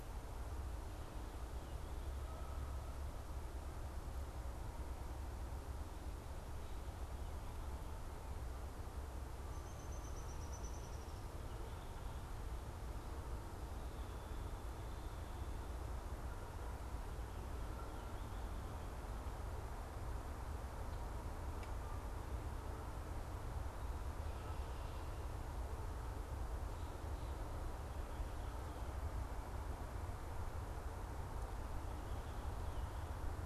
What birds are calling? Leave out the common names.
Dryobates pubescens